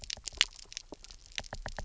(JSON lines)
{"label": "biophony, knock", "recorder": "SoundTrap 300"}